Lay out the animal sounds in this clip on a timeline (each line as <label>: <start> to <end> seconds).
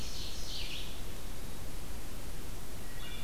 Ovenbird (Seiurus aurocapilla): 0.0 to 0.7 seconds
Red-eyed Vireo (Vireo olivaceus): 0.0 to 3.2 seconds